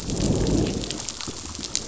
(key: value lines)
label: biophony, growl
recorder: SoundTrap 500